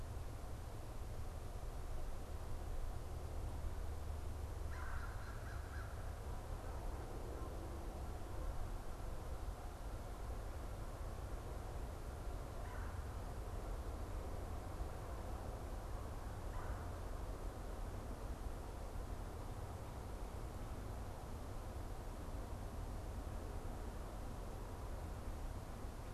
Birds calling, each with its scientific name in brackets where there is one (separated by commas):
American Crow (Corvus brachyrhynchos), Red-bellied Woodpecker (Melanerpes carolinus)